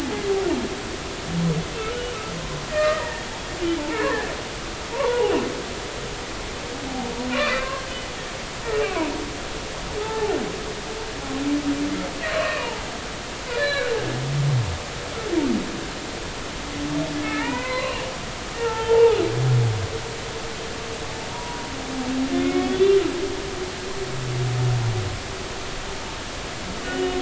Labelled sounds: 2.7	4.3	humpback whale, 1.1 to 2.0 kHz
4.9	5.3	humpback whale, 0.80 to 1.2 kHz
7.3	7.9	humpback whale, 1.5 to 2.8 kHz
8.7	9.1	humpback whale, 0.90 to 2.8 kHz
11.0	11.4	humpback whale, 0.80 to 0.93 kHz
12.4	12.8	humpback whale, 0.83 to 2.6 kHz
13.5	13.9	humpback whale, 1.6 to 4.2 kHz
17.2	18.1	humpback whale, 0.86 to 2.9 kHz
18.5	19.2	humpback whale, 0.80 to 1.9 kHz
21.3	21.7	humpback whale, 0.90 to 1.0 kHz
22.4	22.9	humpback whale, 2.1 to 3.6 kHz
26.8	27.1	humpback whale, 2.8 to 3.0 kHz

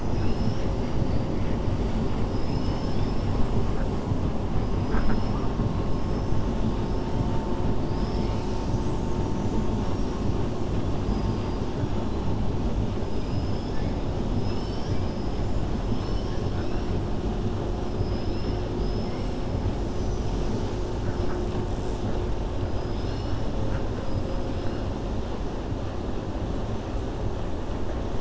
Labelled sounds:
4.7	5.4	killer whale, 4.2 to 5.9 kHz
13.0	13.9	killer whale, 4.9 to 6.3 kHz
17.9	19.3	killer whale, 4.2 to 5.6 kHz
19.8	20.9	killer whale, 4.2 to 7.9 kHz
22.7	23.4	killer whale, 2.8 to 5.8 kHz

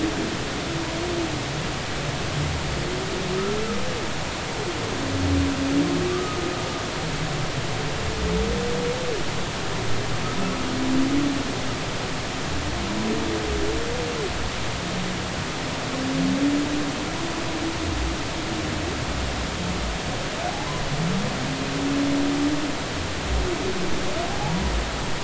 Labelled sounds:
6.1	6.4	humpback whale, 1.1 to 1.3 kHz
24.4	24.7	humpback whale, 0.80 to 1.1 kHz

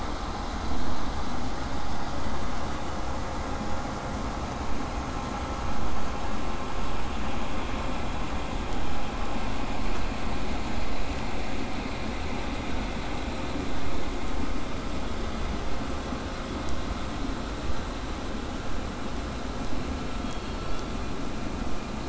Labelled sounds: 10.6	15.6	vessel noise, 0 to 8.0 kHz
20.2	21.0	killer whale, southern resident, 2.3 to 4.8 kHz

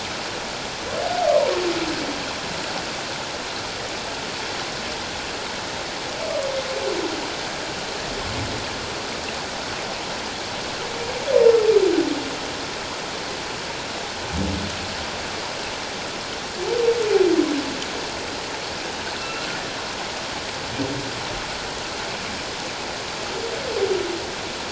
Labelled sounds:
19.2	19.5	humpback whale, 2.6 to 2.8 kHz

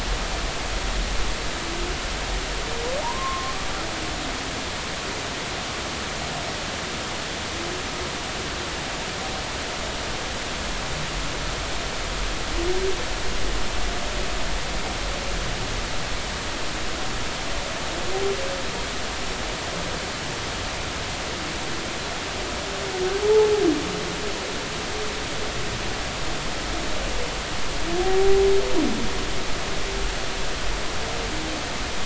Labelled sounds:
3.0	3.5	humpback whale, 0.80 to 1.2 kHz
23.2	23.5	humpback whale, 0.80 to 0.93 kHz
29.0	29.5	humpback whale, 0.80 to 0.83 kHz

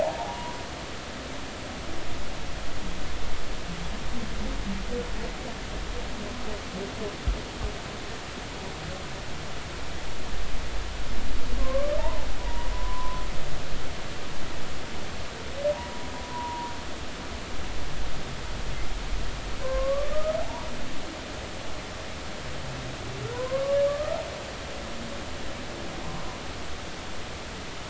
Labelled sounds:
0.0	0.6	humpback whale, 0.80 to 1.0 kHz
11.6	13.2	humpback whale, 0.90 to 1.2 kHz
15.7	16.7	humpback whale, 0.90 to 1.1 kHz
19.6	20.7	humpback whale, 0.80 to 1.3 kHz
23.3	24.2	humpback whale, 0.93 to 1.4 kHz

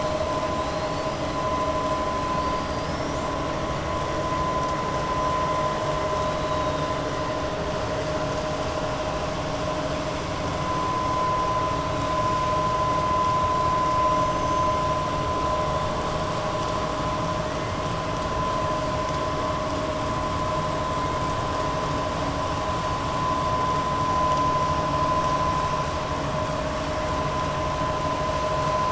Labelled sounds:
0.6	1.1	killer whale, 3.8 to 5.0 kHz
14.1	14.7	killer whale, 5.2 to 6.5 kHz

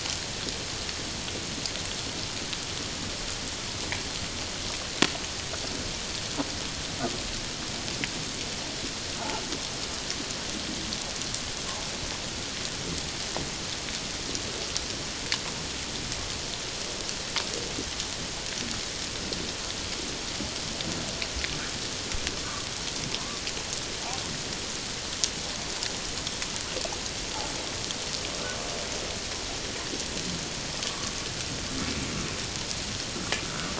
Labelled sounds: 22.4	22.7	humpback whale, 1.1 to 1.2 kHz

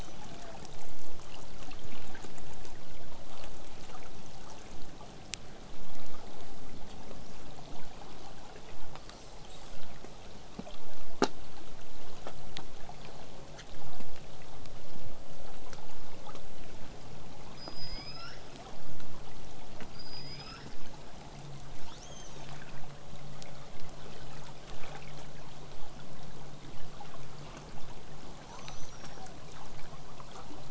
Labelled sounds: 9.0	9.8	killer whale, southern resident, 2.6 to 8.0 kHz
17.5	18.5	killer whale, southern resident, L pod, call S19, 0.89 to 8.0 kHz
19.9	20.7	killer whale, southern resident, L pod, call S19, 1.1 to 8.0 kHz
21.9	22.6	killer whale, southern resident, L pod, call S02iii, 0.66 to 8.0 kHz
22.7	27.7	vessel noise, 0 to 8.0 kHz
28.4	29.4	killer whale, southern resident, L pod, call S02iii, 0.43 to 8.0 kHz

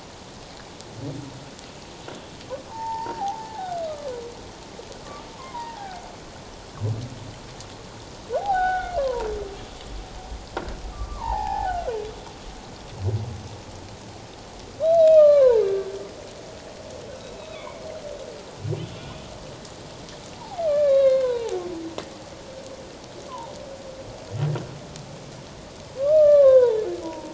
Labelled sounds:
2.7	4.1	humpback whale, 0.78 to 1.9 kHz
5.4	6.0	humpback whale, 0.78 to 1.7 kHz
8.4	9.3	humpback whale, 0.78 to 3.9 kHz
10.9	12.0	humpback whale, 0.78 to 1.9 kHz
14.8	15.6	humpback whale, 0.81 to 4.1 kHz
17.2	17.8	humpback whale, 2.1 to 2.6 kHz
20.4	21.6	humpback whale, 0.78 to 4.6 kHz
23.3	23.5	humpback whale, 0.78 to 1.2 kHz
26.0	27.3	humpback whale, 0.84 to 1.8 kHz

